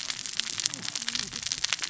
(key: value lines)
label: biophony, cascading saw
recorder: SoundTrap 600 or HydroMoth